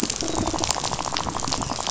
{"label": "biophony, rattle", "recorder": "SoundTrap 500"}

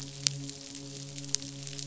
{"label": "biophony, midshipman", "recorder": "SoundTrap 500"}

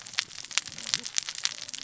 {"label": "biophony, cascading saw", "recorder": "SoundTrap 600 or HydroMoth"}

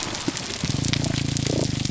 {"label": "biophony, grouper groan", "recorder": "SoundTrap 300"}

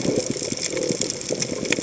{"label": "biophony", "recorder": "HydroMoth"}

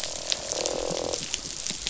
{"label": "biophony, croak", "recorder": "SoundTrap 500"}
{"label": "biophony", "recorder": "SoundTrap 500"}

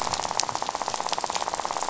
{"label": "biophony, rattle", "recorder": "SoundTrap 500"}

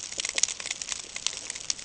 {"label": "ambient", "recorder": "HydroMoth"}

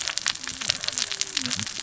{"label": "biophony, cascading saw", "recorder": "SoundTrap 600 or HydroMoth"}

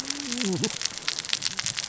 {"label": "biophony, cascading saw", "recorder": "SoundTrap 600 or HydroMoth"}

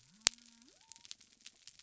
{"label": "biophony", "recorder": "SoundTrap 300"}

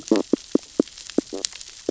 {"label": "biophony, stridulation", "recorder": "SoundTrap 600 or HydroMoth"}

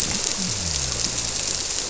{"label": "biophony", "recorder": "SoundTrap 300"}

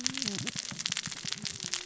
{"label": "biophony, cascading saw", "recorder": "SoundTrap 600 or HydroMoth"}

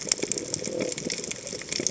{"label": "biophony", "recorder": "HydroMoth"}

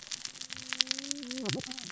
{"label": "biophony, cascading saw", "recorder": "SoundTrap 600 or HydroMoth"}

